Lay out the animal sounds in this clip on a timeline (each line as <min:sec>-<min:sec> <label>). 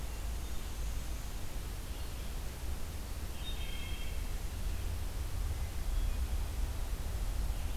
0:00.0-0:01.5 Black-and-white Warbler (Mniotilta varia)
0:03.1-0:04.5 Wood Thrush (Hylocichla mustelina)